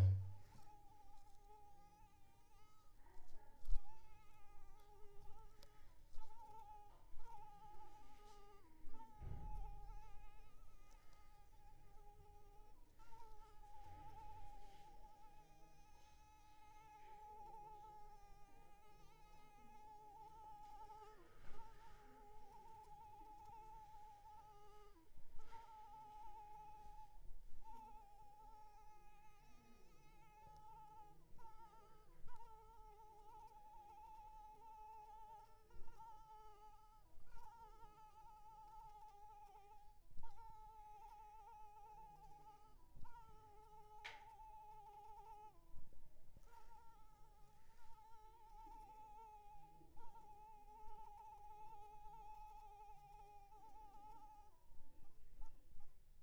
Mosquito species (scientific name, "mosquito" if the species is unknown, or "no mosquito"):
Anopheles arabiensis